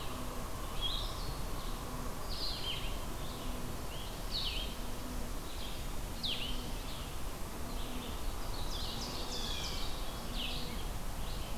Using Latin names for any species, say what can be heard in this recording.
Vireo solitarius, Seiurus aurocapilla, Cyanocitta cristata